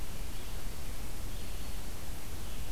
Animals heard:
forest ambience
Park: Marsh-Billings-Rockefeller National Historical Park